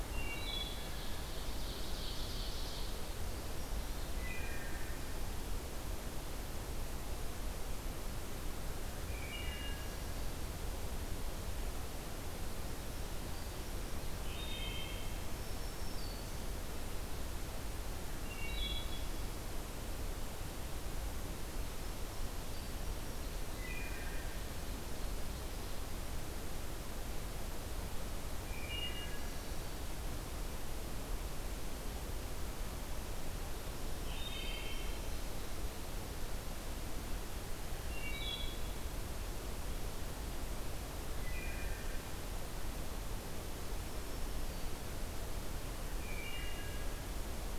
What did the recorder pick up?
Wood Thrush, Ovenbird, Black-throated Green Warbler